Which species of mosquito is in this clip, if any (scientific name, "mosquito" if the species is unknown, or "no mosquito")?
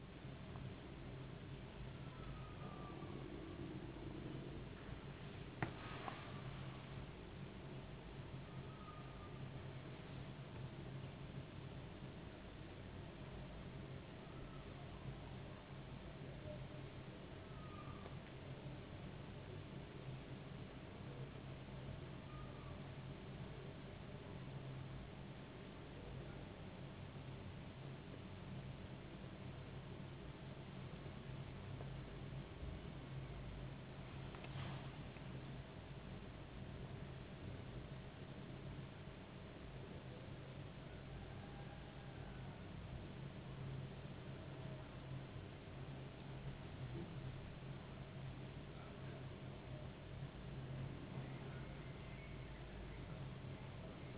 no mosquito